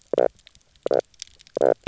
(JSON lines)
{"label": "biophony, knock croak", "recorder": "SoundTrap 300"}